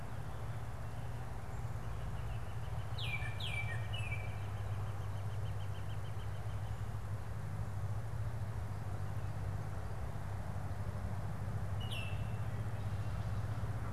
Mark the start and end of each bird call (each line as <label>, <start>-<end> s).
Northern Flicker (Colaptes auratus), 0.3-6.9 s
Baltimore Oriole (Icterus galbula), 2.7-4.5 s
Baltimore Oriole (Icterus galbula), 11.7-12.7 s